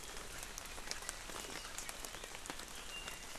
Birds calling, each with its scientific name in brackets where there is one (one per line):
Apapane (Himatione sanguinea)